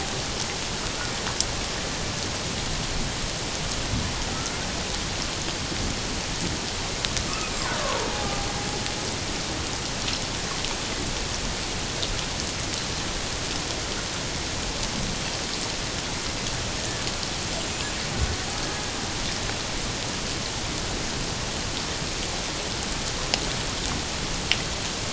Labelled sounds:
8.1	8.4	killer whale, Bigg's (transient), 0.78 to 0.88 kHz
17.6	17.9	killer whale, Bigg's (transient), 7.1 to 7.5 kHz

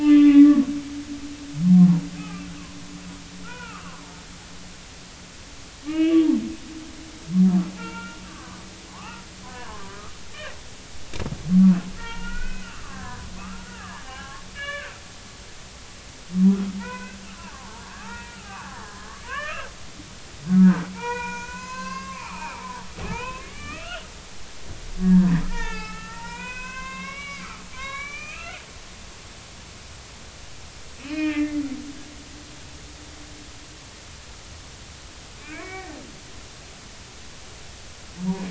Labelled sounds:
0.0	0.7	humpback whale, 0.96 to 3.6 kHz
1.7	2.5	humpback whale, 0.93 to 2.6 kHz
3.4	4.0	humpback whale, 0.83 to 3.0 kHz
5.9	6.2	humpback whale, 2.1 to 3.0 kHz
7.8	10.6	humpback whale, 0.80 to 2.9 kHz
11.5	14.9	humpback whale, 0.80 to 3.0 kHz
16.8	19.6	humpback whale, 0.80 to 3.1 kHz
20.5	22.7	humpback whale, 0.80 to 6.8 kHz
23.1	24.1	humpback whale, 0.80 to 3.2 kHz
25.0	28.6	humpback whale, 0.80 to 4.1 kHz
31.1	31.6	humpback whale, 1.2 to 2.8 kHz
32.0	32.5	humpback whale, 2.3 to 2.7 kHz
35.5	36.0	humpback whale, 0.93 to 2.5 kHz

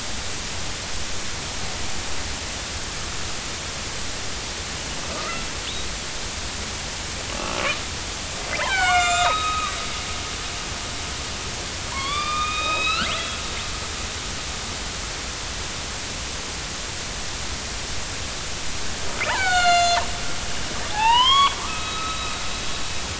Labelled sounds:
5.1	5.5	killer whale, northern resident, A clan, AB subclan, 1.2 to 1.4 kHz
8.6	9.8	killer whale, northern resident, A clan, AB subclan, 0.80 to 8.0 kHz
11.9	13.4	killer whale, northern resident, A clan, AB subclan, 0.90 to 5.2 kHz
19.2	20.0	killer whale, northern resident, A clan, AB subclan, 0.80 to 7.1 kHz
20.9	22.4	killer whale, northern resident, A clan, AB subclan, 0.80 to 4.1 kHz

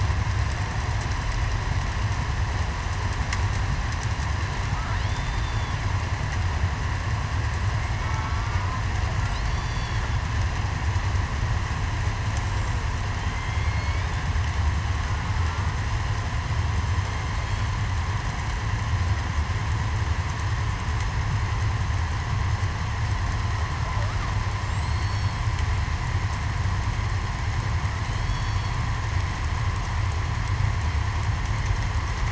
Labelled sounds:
5.1	5.7	killer whale, southern resident, 3.4 to 3.6 kHz
7.8	8.2	killer whale, southern resident, 2.1 to 2.3 kHz
9.4	10.0	killer whale, southern resident, 5.6 to 8.0 kHz
13.2	13.7	killer whale, southern resident, 3.1 to 3.4 kHz
24.6	25.4	killer whale, southern resident, 4.1 to 7.9 kHz
28.2	28.8	killer whale, southern resident, 3.2 to 4.5 kHz

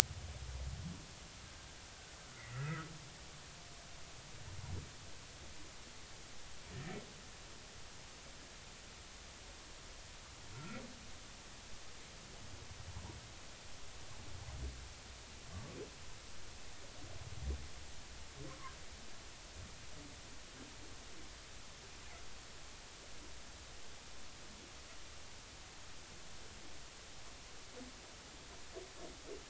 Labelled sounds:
2.4	2.9	humpback whale, 1.2 to 2.2 kHz
10.5	10.8	humpback whale, 1.3 to 1.4 kHz

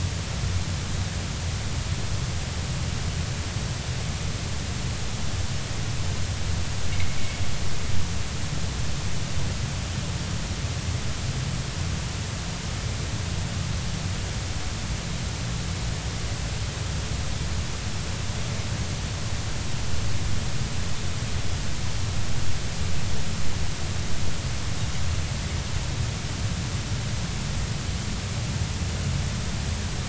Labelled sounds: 6.9	7.2	anchor noise, 2.0 to 2.3 kHz

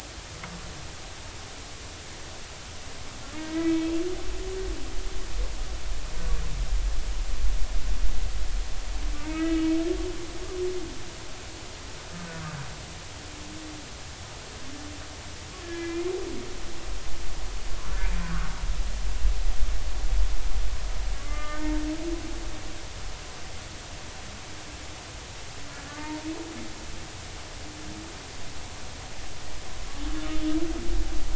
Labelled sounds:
3.4	3.9	humpback whale, 1.2 to 2.7 kHz
9.2	9.7	humpback whale, 1.2 to 2.7 kHz
15.6	16.0	humpback whale, 1.6 to 2.5 kHz
17.8	18.1	humpback whale, 1.3 to 1.6 kHz
21.1	21.7	humpback whale, 1.1 to 2.1 kHz
25.7	26.1	humpback whale, 1.1 to 1.8 kHz

